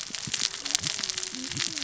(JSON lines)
{"label": "biophony, cascading saw", "recorder": "SoundTrap 600 or HydroMoth"}